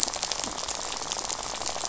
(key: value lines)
label: biophony, rattle
recorder: SoundTrap 500